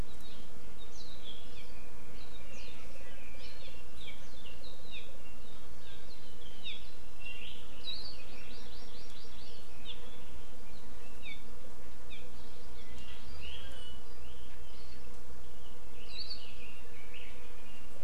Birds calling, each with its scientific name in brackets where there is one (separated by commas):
Red-billed Leiothrix (Leiothrix lutea), Hawaii Amakihi (Chlorodrepanis virens), Hawaii Akepa (Loxops coccineus), Warbling White-eye (Zosterops japonicus)